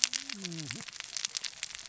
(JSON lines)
{"label": "biophony, cascading saw", "recorder": "SoundTrap 600 or HydroMoth"}